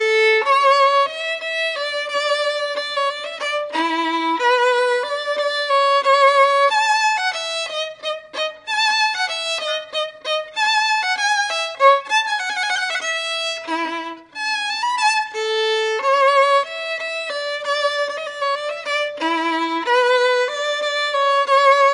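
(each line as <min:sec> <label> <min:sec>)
0:00.0 A solo violin plays a melody. 0:21.9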